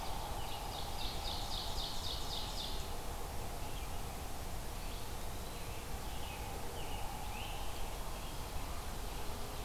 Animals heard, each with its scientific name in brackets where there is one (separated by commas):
Ovenbird (Seiurus aurocapilla), Red-eyed Vireo (Vireo olivaceus), Eastern Wood-Pewee (Contopus virens), American Robin (Turdus migratorius)